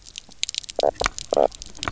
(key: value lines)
label: biophony, knock croak
recorder: SoundTrap 300